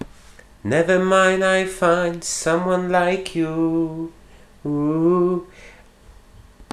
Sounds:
Sigh